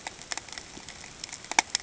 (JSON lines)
{"label": "ambient", "recorder": "HydroMoth"}